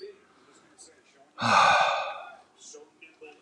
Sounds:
Sigh